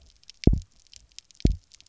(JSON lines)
{"label": "biophony, double pulse", "recorder": "SoundTrap 300"}